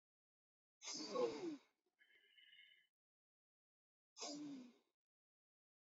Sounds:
Sniff